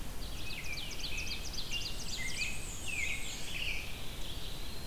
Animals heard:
Black-and-white Warbler (Mniotilta varia), Red-eyed Vireo (Vireo olivaceus), American Robin (Turdus migratorius), Ovenbird (Seiurus aurocapilla)

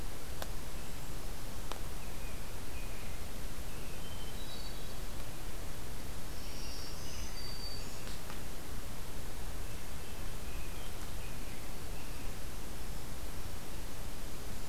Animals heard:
American Robin (Turdus migratorius), Hermit Thrush (Catharus guttatus), Black-throated Green Warbler (Setophaga virens)

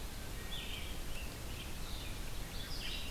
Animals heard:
Red-eyed Vireo (Vireo olivaceus), Wood Thrush (Hylocichla mustelina)

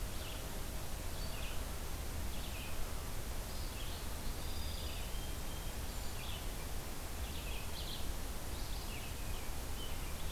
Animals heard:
Song Sparrow (Melospiza melodia), American Robin (Turdus migratorius), Red-eyed Vireo (Vireo olivaceus)

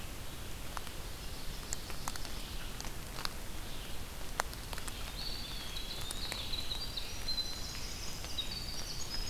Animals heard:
Eastern Wood-Pewee (Contopus virens), Ovenbird (Seiurus aurocapilla), Winter Wren (Troglodytes hiemalis), Red-eyed Vireo (Vireo olivaceus)

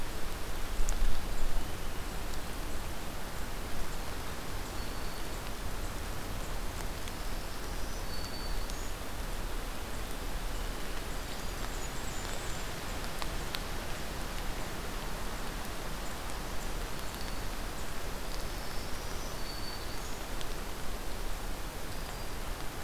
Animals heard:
Purple Finch (Haemorhous purpureus), Black-throated Green Warbler (Setophaga virens), Blackburnian Warbler (Setophaga fusca)

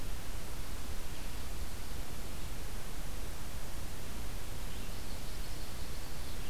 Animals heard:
Common Yellowthroat (Geothlypis trichas)

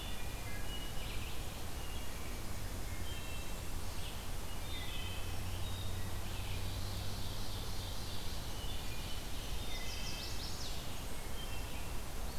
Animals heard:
Chestnut-sided Warbler (Setophaga pensylvanica), Red-eyed Vireo (Vireo olivaceus), Wood Thrush (Hylocichla mustelina), Ovenbird (Seiurus aurocapilla), Blackburnian Warbler (Setophaga fusca), Black-capped Chickadee (Poecile atricapillus)

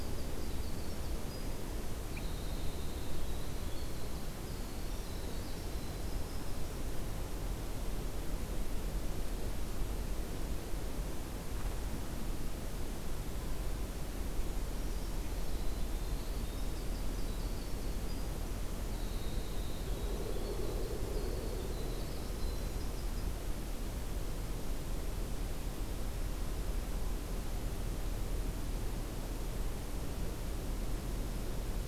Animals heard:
Brown Creeper (Certhia americana), Winter Wren (Troglodytes hiemalis)

